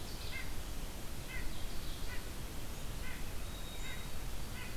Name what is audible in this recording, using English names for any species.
White-breasted Nuthatch, Ovenbird, White-throated Sparrow